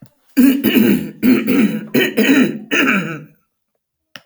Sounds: Throat clearing